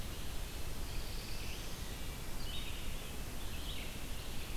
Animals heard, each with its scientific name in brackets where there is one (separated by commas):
Black-throated Blue Warbler (Setophaga caerulescens), Red-eyed Vireo (Vireo olivaceus)